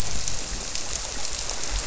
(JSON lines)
{"label": "biophony", "recorder": "SoundTrap 300"}